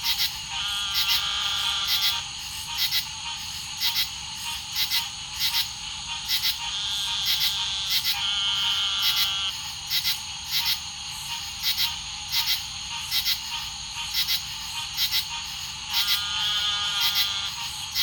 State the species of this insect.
Pterophylla camellifolia